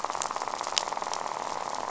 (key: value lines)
label: biophony, rattle
recorder: SoundTrap 500